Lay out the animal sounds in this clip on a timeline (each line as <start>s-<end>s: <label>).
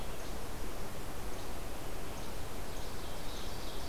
0.0s-3.9s: Least Flycatcher (Empidonax minimus)
2.6s-3.9s: Ovenbird (Seiurus aurocapilla)